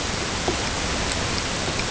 {"label": "ambient", "recorder": "HydroMoth"}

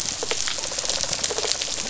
{"label": "biophony, rattle response", "recorder": "SoundTrap 500"}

